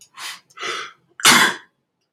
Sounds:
Sneeze